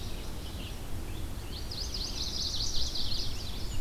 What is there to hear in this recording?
Red-eyed Vireo, Chestnut-sided Warbler